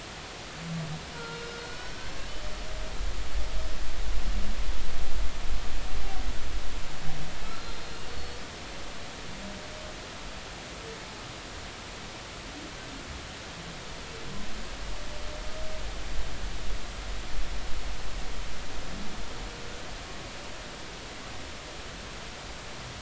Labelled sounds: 1.2	2.0	humpback whale, 1.3 to 5.6 kHz
7.5	8.4	humpback whale, 3.9 to 4.4 kHz

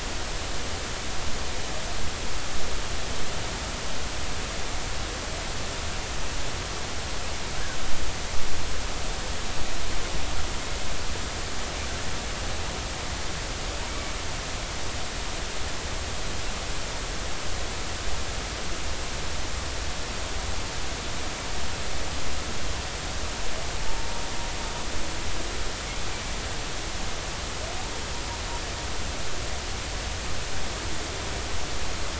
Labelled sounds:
23.8	24.2	humpback whale, 0.83 to 0.99 kHz

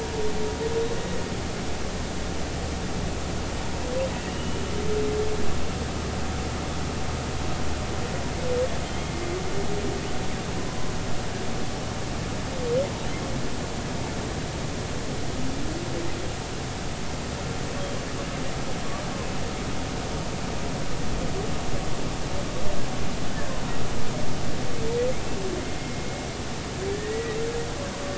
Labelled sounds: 0.0	0.2	humpback whale, 0.86 to 0.99 kHz
4.1	4.6	humpback whale, 2.6 to 3.0 kHz
8.9	9.2	humpback whale, 2.1 to 2.2 kHz
25.6	26.2	humpback whale, 2.1 to 2.2 kHz
26.9	27.4	humpback whale, 1.7 to 2.0 kHz

